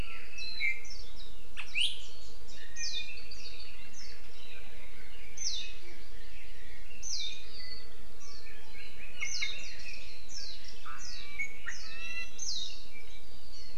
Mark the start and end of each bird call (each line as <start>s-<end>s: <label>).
0.0s-0.6s: Red-billed Leiothrix (Leiothrix lutea)
0.4s-1.2s: Warbling White-eye (Zosterops japonicus)
0.6s-1.0s: Apapane (Himatione sanguinea)
2.5s-4.3s: Apapane (Himatione sanguinea)
2.8s-4.3s: Warbling White-eye (Zosterops japonicus)
5.4s-5.8s: Warbling White-eye (Zosterops japonicus)
5.8s-6.9s: Hawaii Amakihi (Chlorodrepanis virens)
7.0s-7.5s: Warbling White-eye (Zosterops japonicus)
9.2s-9.6s: Warbling White-eye (Zosterops japonicus)
10.3s-10.6s: Warbling White-eye (Zosterops japonicus)
11.0s-11.3s: Warbling White-eye (Zosterops japonicus)
11.2s-12.4s: Iiwi (Drepanis coccinea)
11.7s-12.0s: Warbling White-eye (Zosterops japonicus)
12.4s-12.8s: Warbling White-eye (Zosterops japonicus)